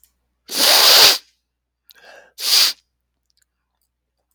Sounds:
Sniff